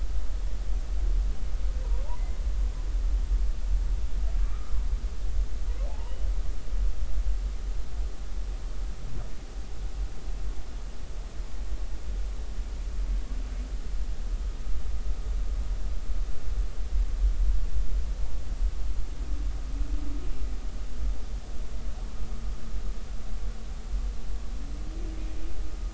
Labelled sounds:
4.4	4.8	humpback whale, 1.1 to 1.4 kHz
5.9	6.1	humpback whale, 0.80 to 1.1 kHz

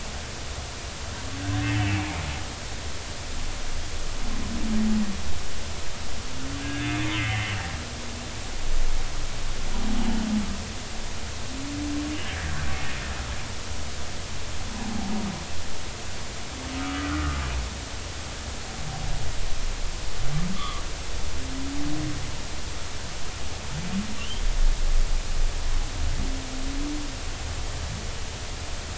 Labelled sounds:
6.6	7.5	humpback whale, 1.5 to 2.5 kHz
14.8	15.1	humpback whale, 0.80 to 0.93 kHz
16.8	17.4	humpback whale, 1.1 to 1.5 kHz
20.5	20.8	humpback whale, 1.1 to 1.3 kHz
24.2	24.4	humpback whale, 2.7 to 3.3 kHz

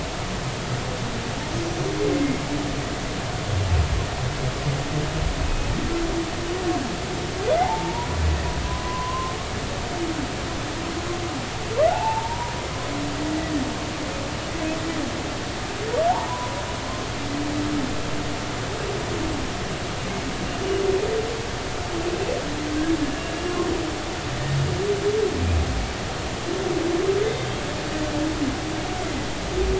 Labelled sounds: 5.4	5.7	humpback whale, 2.5 to 2.6 kHz
7.6	8.1	humpback whale, 0.80 to 1.1 kHz
8.7	9.3	humpback whale, 0.96 to 1.1 kHz
11.9	12.5	humpback whale, 0.80 to 1.0 kHz
16.1	16.5	humpback whale, 0.80 to 1.2 kHz
27.2	27.5	humpback whale, 2.0 to 2.1 kHz

